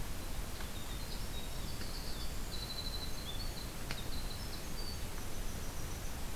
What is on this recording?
Golden-crowned Kinglet, Winter Wren